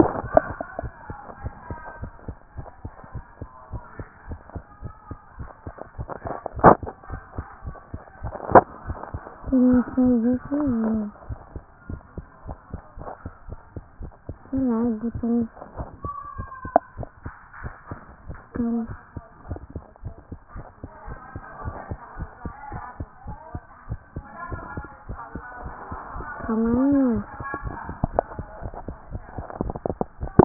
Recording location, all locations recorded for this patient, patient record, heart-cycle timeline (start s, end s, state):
tricuspid valve (TV)
aortic valve (AV)+pulmonary valve (PV)+tricuspid valve (TV)+mitral valve (MV)
#Age: Child
#Sex: Male
#Height: 138.0 cm
#Weight: 33.0 kg
#Pregnancy status: False
#Murmur: Absent
#Murmur locations: nan
#Most audible location: nan
#Systolic murmur timing: nan
#Systolic murmur shape: nan
#Systolic murmur grading: nan
#Systolic murmur pitch: nan
#Systolic murmur quality: nan
#Diastolic murmur timing: nan
#Diastolic murmur shape: nan
#Diastolic murmur grading: nan
#Diastolic murmur pitch: nan
#Diastolic murmur quality: nan
#Outcome: Normal
#Campaign: 2014 screening campaign
0.00	1.42	unannotated
1.42	1.54	S1
1.54	1.70	systole
1.70	1.78	S2
1.78	2.00	diastole
2.00	2.12	S1
2.12	2.26	systole
2.26	2.36	S2
2.36	2.56	diastole
2.56	2.66	S1
2.66	2.84	systole
2.84	2.92	S2
2.92	3.14	diastole
3.14	3.24	S1
3.24	3.40	systole
3.40	3.50	S2
3.50	3.72	diastole
3.72	3.82	S1
3.82	3.98	systole
3.98	4.08	S2
4.08	4.28	diastole
4.28	4.38	S1
4.38	4.54	systole
4.54	4.64	S2
4.64	4.82	diastole
4.82	4.94	S1
4.94	5.10	systole
5.10	5.18	S2
5.18	5.38	diastole
5.38	5.48	S1
5.48	5.66	systole
5.66	5.74	S2
5.74	5.98	diastole
5.98	30.45	unannotated